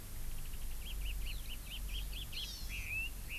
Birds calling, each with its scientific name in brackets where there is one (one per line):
Red-billed Leiothrix (Leiothrix lutea)
Hawaii Amakihi (Chlorodrepanis virens)